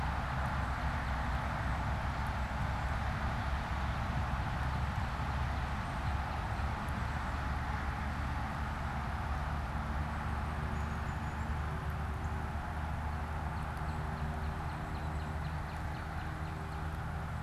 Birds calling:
Brown Creeper (Certhia americana), Northern Cardinal (Cardinalis cardinalis)

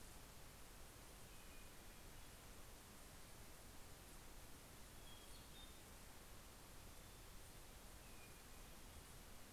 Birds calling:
Hermit Thrush (Catharus guttatus)

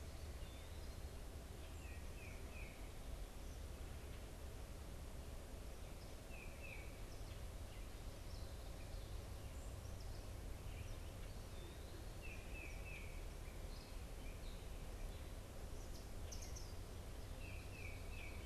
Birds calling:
unidentified bird, Tufted Titmouse (Baeolophus bicolor)

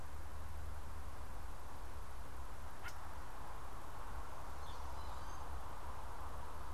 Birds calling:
unidentified bird

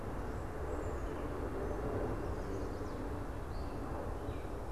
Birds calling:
Gray Catbird (Dumetella carolinensis), Chestnut-sided Warbler (Setophaga pensylvanica)

